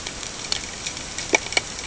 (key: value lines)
label: ambient
recorder: HydroMoth